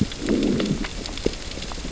{"label": "biophony, growl", "recorder": "SoundTrap 600 or HydroMoth"}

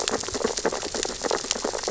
{"label": "biophony, sea urchins (Echinidae)", "recorder": "SoundTrap 600 or HydroMoth"}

